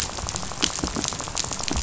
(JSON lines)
{"label": "biophony, rattle", "recorder": "SoundTrap 500"}